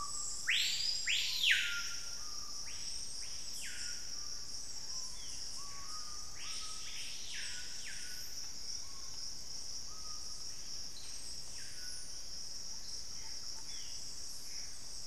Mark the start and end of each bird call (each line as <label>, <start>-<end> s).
Screaming Piha (Lipaugus vociferans), 0.0-12.2 s
Thrush-like Wren (Campylorhynchus turdinus), 12.6-13.7 s
Gray Antbird (Cercomacra cinerascens), 13.0-15.1 s